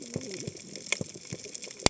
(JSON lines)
{"label": "biophony, cascading saw", "recorder": "HydroMoth"}